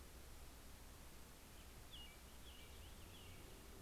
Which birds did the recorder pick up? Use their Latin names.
Turdus migratorius, Haemorhous purpureus